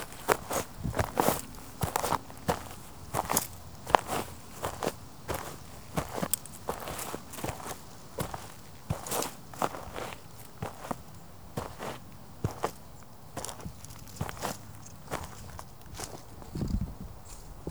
Is someone moving?
yes